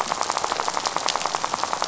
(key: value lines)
label: biophony, rattle
recorder: SoundTrap 500